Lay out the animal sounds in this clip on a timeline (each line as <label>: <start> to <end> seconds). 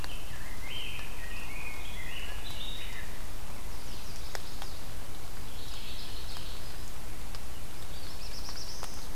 Rose-breasted Grosbeak (Pheucticus ludovicianus): 0.0 to 3.2 seconds
Chestnut-sided Warbler (Setophaga pensylvanica): 3.7 to 5.0 seconds
Mourning Warbler (Geothlypis philadelphia): 5.5 to 6.7 seconds
Black-throated Blue Warbler (Setophaga caerulescens): 7.7 to 9.2 seconds